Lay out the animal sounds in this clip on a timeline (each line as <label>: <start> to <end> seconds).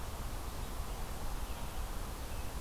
Red-eyed Vireo (Vireo olivaceus): 0.0 to 2.6 seconds